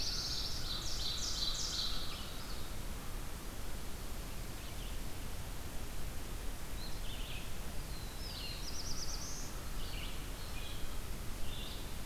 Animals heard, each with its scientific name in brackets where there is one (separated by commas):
Ovenbird (Seiurus aurocapilla), Black-throated Blue Warbler (Setophaga caerulescens), American Crow (Corvus brachyrhynchos), Red-eyed Vireo (Vireo olivaceus)